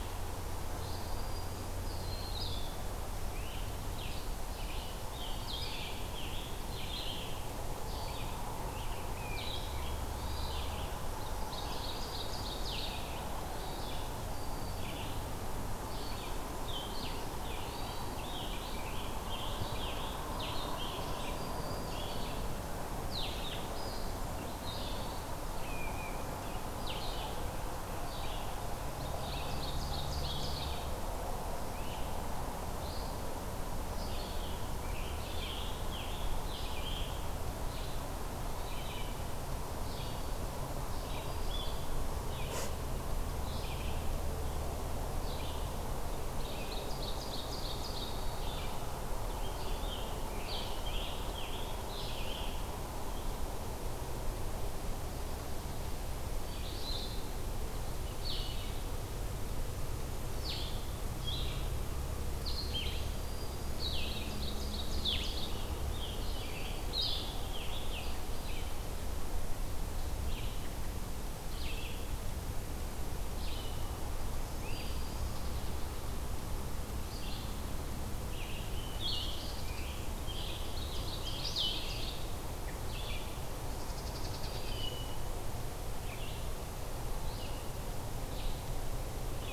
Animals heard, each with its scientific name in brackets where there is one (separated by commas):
Red-eyed Vireo (Vireo olivaceus), Blue Jay (Cyanocitta cristata), Blue-headed Vireo (Vireo solitarius), Scarlet Tanager (Piranga olivacea), Hermit Thrush (Catharus guttatus), Great Crested Flycatcher (Myiarchus crinitus), unidentified call, Black-throated Green Warbler (Setophaga virens), Ovenbird (Seiurus aurocapilla)